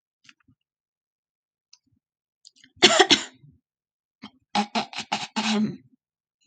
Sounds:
Throat clearing